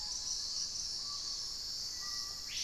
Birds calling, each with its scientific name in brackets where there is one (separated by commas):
Hauxwell's Thrush (Turdus hauxwelli), Screaming Piha (Lipaugus vociferans), Cinereous Mourner (Laniocera hypopyrra), Wing-barred Piprites (Piprites chloris), Dusky-throated Antshrike (Thamnomanes ardesiacus)